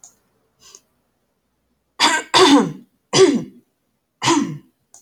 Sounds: Throat clearing